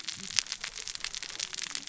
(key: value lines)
label: biophony, cascading saw
recorder: SoundTrap 600 or HydroMoth